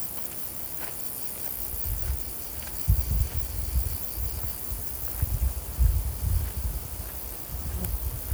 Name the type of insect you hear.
orthopteran